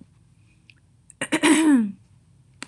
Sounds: Throat clearing